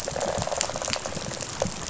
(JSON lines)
{"label": "biophony, rattle response", "recorder": "SoundTrap 500"}